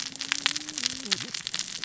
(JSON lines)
{"label": "biophony, cascading saw", "recorder": "SoundTrap 600 or HydroMoth"}